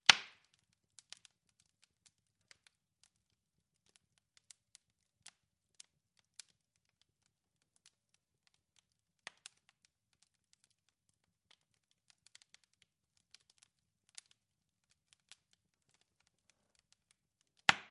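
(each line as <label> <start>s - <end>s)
Fire crackling continuously indoors. 0.0s - 17.9s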